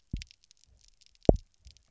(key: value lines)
label: biophony, double pulse
recorder: SoundTrap 300